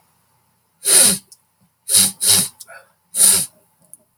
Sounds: Sniff